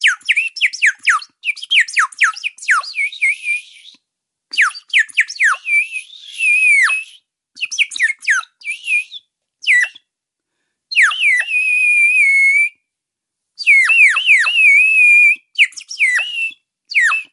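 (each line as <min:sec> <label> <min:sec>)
0:00.0 Someone is playing a wooden pull flute with a high-pitched, warbling, and repetitive sound featuring varying notes and pauses. 0:17.3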